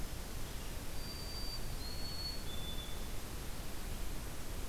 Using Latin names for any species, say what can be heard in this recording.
Zonotrichia albicollis